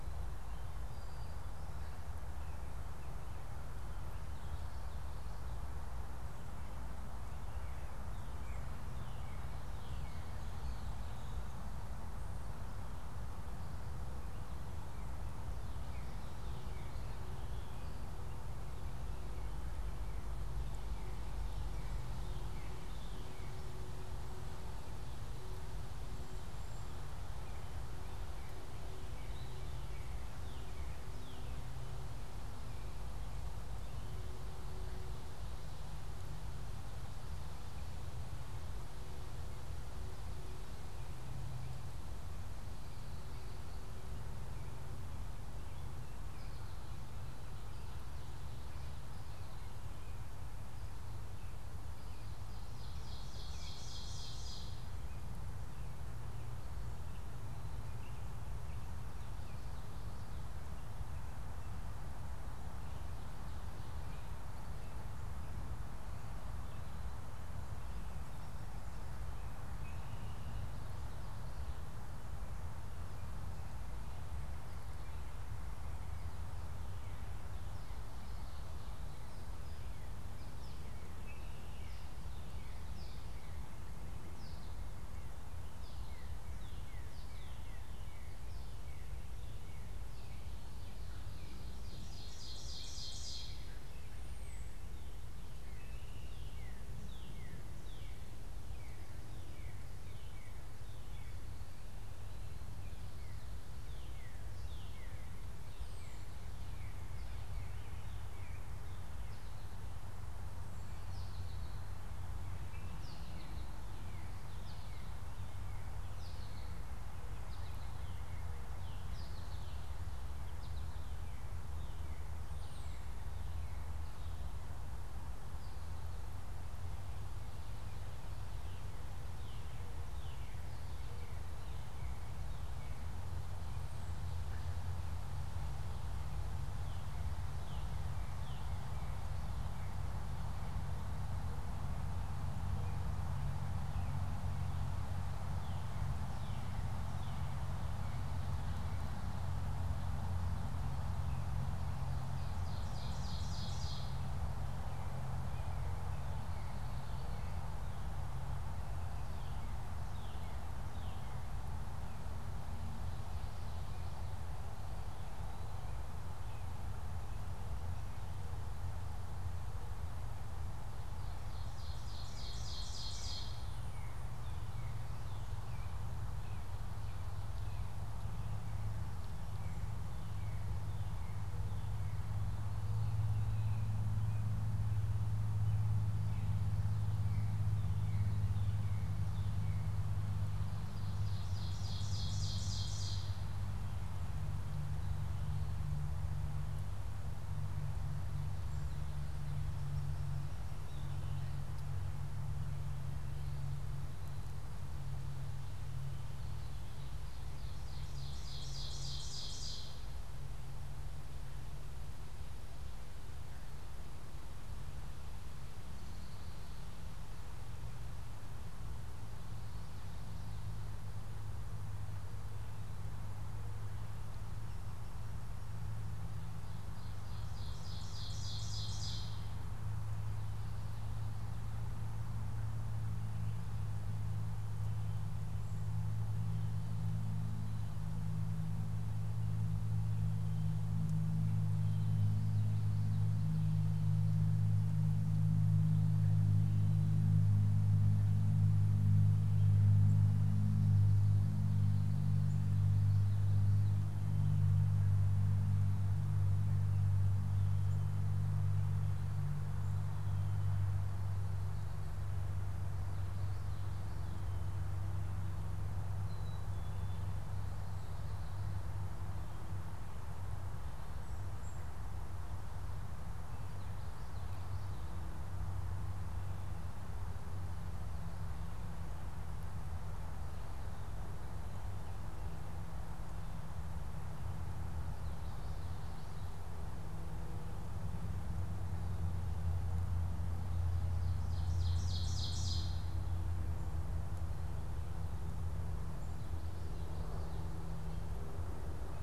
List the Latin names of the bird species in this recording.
Molothrus ater, Cardinalis cardinalis, Seiurus aurocapilla, Spinus tristis, Turdus migratorius, unidentified bird, Poecile atricapillus